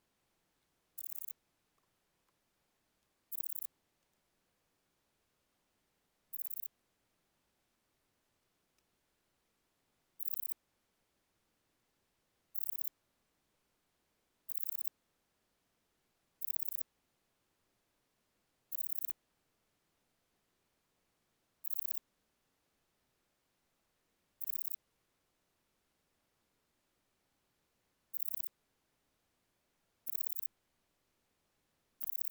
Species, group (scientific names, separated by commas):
Pachytrachis gracilis, Orthoptera